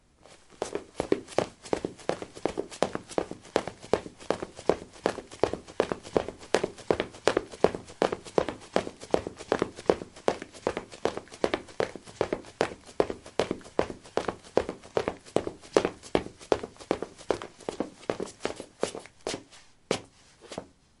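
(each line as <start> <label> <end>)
0.6 Running footsteps on a hard surface at a steady rhythm. 19.4
19.9 One step on a hard surface. 20.7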